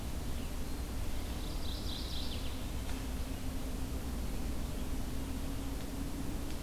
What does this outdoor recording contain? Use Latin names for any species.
Geothlypis philadelphia